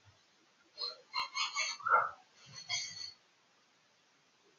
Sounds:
Sniff